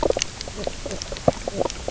{"label": "biophony, knock croak", "recorder": "SoundTrap 300"}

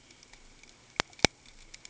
{"label": "ambient", "recorder": "HydroMoth"}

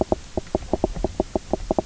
{"label": "biophony, knock croak", "recorder": "SoundTrap 300"}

